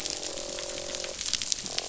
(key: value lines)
label: biophony, croak
recorder: SoundTrap 500